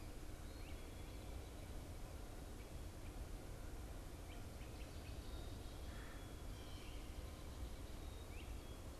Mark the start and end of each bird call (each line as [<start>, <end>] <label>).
[4.08, 8.48] Great Crested Flycatcher (Myiarchus crinitus)
[5.68, 6.49] Red-bellied Woodpecker (Melanerpes carolinus)